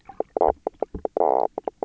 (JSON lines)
{"label": "biophony, knock croak", "recorder": "SoundTrap 300"}